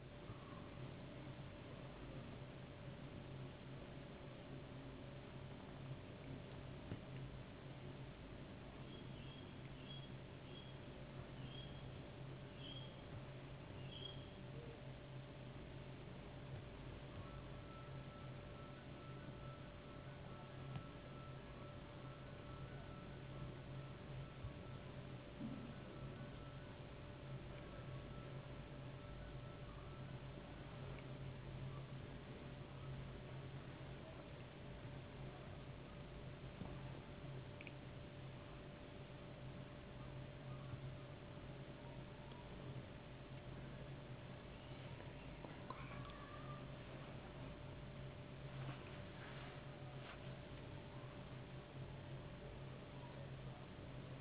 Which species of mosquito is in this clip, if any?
no mosquito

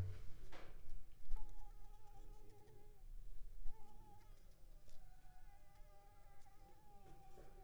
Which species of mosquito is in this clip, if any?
Anopheles squamosus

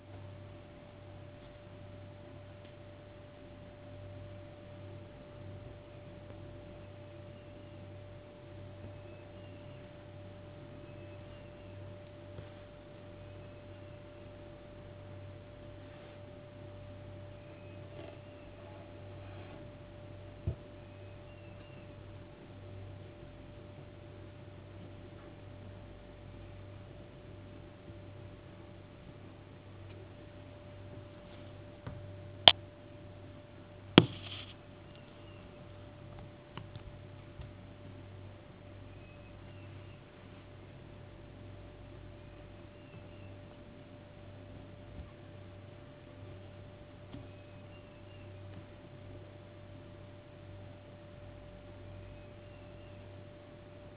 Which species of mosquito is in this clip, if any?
no mosquito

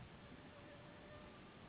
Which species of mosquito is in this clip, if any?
Anopheles gambiae s.s.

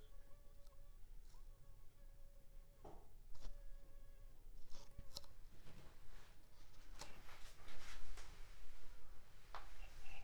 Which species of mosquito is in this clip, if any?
Anopheles funestus s.s.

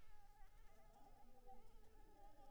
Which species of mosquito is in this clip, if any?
Anopheles maculipalpis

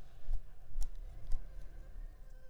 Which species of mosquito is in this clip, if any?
Anopheles arabiensis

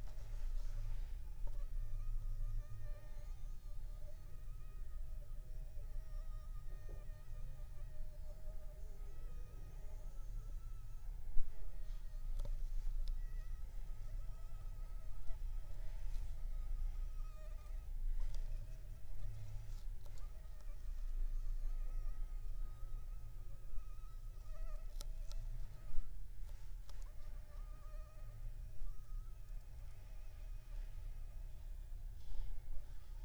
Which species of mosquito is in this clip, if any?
Anopheles funestus s.s.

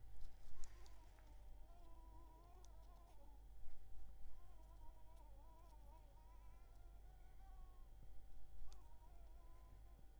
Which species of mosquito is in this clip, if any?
Anopheles coustani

